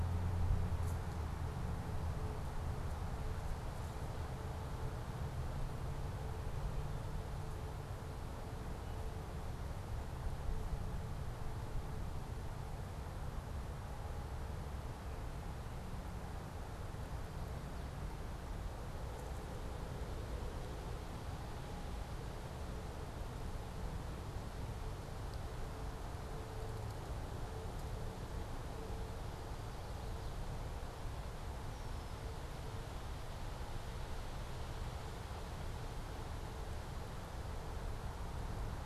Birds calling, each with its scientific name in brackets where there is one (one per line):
Red-winged Blackbird (Agelaius phoeniceus)
Chestnut-sided Warbler (Setophaga pensylvanica)